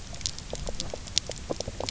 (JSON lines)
{"label": "biophony, knock croak", "recorder": "SoundTrap 300"}